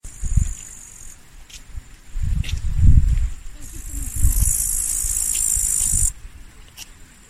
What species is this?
Tettigonia cantans